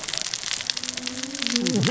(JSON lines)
{"label": "biophony, cascading saw", "recorder": "SoundTrap 600 or HydroMoth"}